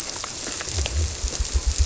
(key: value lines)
label: biophony
recorder: SoundTrap 300